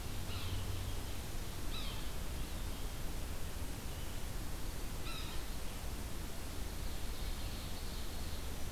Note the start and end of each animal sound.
0.2s-0.7s: Yellow-bellied Sapsucker (Sphyrapicus varius)
1.6s-2.1s: Yellow-bellied Sapsucker (Sphyrapicus varius)
5.0s-5.5s: Yellow-bellied Sapsucker (Sphyrapicus varius)
6.6s-8.4s: Ovenbird (Seiurus aurocapilla)

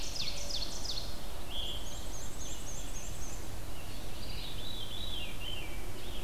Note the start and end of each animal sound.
0.0s-1.3s: Ovenbird (Seiurus aurocapilla)
0.0s-6.2s: Red-eyed Vireo (Vireo olivaceus)
1.1s-2.2s: Veery (Catharus fuscescens)
1.7s-3.5s: Black-and-white Warbler (Mniotilta varia)
4.2s-5.8s: Veery (Catharus fuscescens)

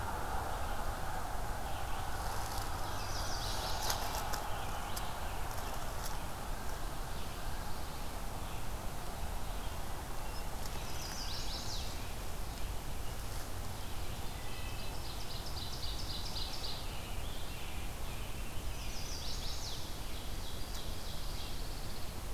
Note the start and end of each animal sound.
2.8s-4.3s: Chestnut-sided Warbler (Setophaga pensylvanica)
3.8s-6.0s: Scarlet Tanager (Piranga olivacea)
7.0s-8.1s: Pine Warbler (Setophaga pinus)
10.6s-12.1s: Chestnut-sided Warbler (Setophaga pensylvanica)
14.3s-16.9s: Ovenbird (Seiurus aurocapilla)
18.5s-20.0s: Chestnut-sided Warbler (Setophaga pensylvanica)
19.5s-21.4s: Ovenbird (Seiurus aurocapilla)
21.0s-22.3s: Pine Warbler (Setophaga pinus)

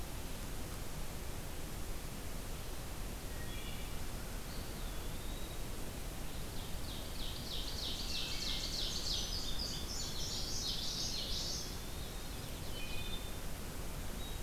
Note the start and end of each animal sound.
3.2s-4.0s: Wood Thrush (Hylocichla mustelina)
4.3s-5.7s: Eastern Wood-Pewee (Contopus virens)
6.3s-9.3s: Ovenbird (Seiurus aurocapilla)
8.1s-8.8s: Wood Thrush (Hylocichla mustelina)
8.7s-10.8s: Indigo Bunting (Passerina cyanea)
10.0s-11.7s: Common Yellowthroat (Geothlypis trichas)
11.2s-12.3s: Eastern Wood-Pewee (Contopus virens)
11.8s-13.1s: Field Sparrow (Spizella pusilla)
12.6s-13.4s: Wood Thrush (Hylocichla mustelina)

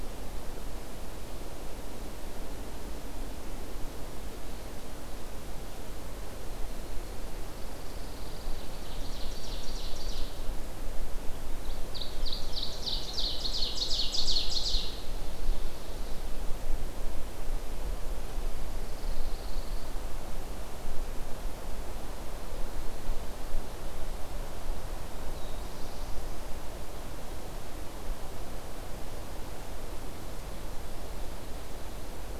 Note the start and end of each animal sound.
7.5s-8.8s: Pine Warbler (Setophaga pinus)
8.3s-10.5s: Ovenbird (Seiurus aurocapilla)
11.5s-16.4s: Ovenbird (Seiurus aurocapilla)
18.6s-20.0s: Pine Warbler (Setophaga pinus)
25.2s-26.5s: Black-throated Blue Warbler (Setophaga caerulescens)

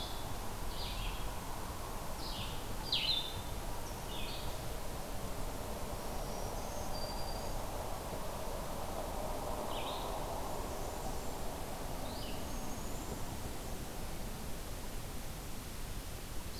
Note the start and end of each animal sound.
0.0s-3.4s: Blue-headed Vireo (Vireo solitarius)
0.0s-16.6s: Red-eyed Vireo (Vireo olivaceus)
5.9s-7.7s: Black-throated Green Warbler (Setophaga virens)
10.2s-11.6s: Blackburnian Warbler (Setophaga fusca)
12.2s-13.4s: unidentified call

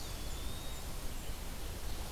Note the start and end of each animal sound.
0.0s-0.8s: Eastern Wood-Pewee (Contopus virens)
0.0s-1.3s: Blackburnian Warbler (Setophaga fusca)
0.0s-2.1s: Red-eyed Vireo (Vireo olivaceus)
1.6s-2.1s: Ovenbird (Seiurus aurocapilla)

